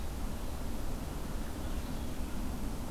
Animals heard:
forest ambience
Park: Marsh-Billings-Rockefeller National Historical Park